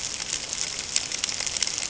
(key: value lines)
label: ambient
recorder: HydroMoth